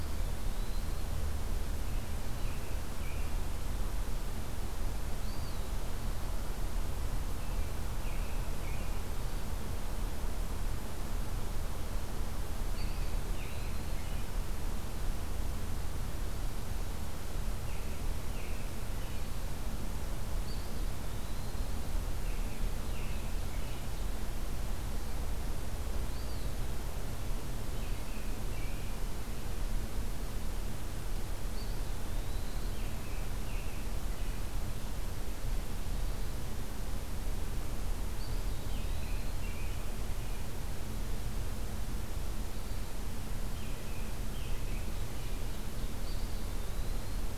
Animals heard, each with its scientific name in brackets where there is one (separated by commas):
Eastern Wood-Pewee (Contopus virens), Ovenbird (Seiurus aurocapilla), American Robin (Turdus migratorius)